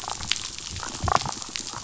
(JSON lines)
{"label": "biophony, damselfish", "recorder": "SoundTrap 500"}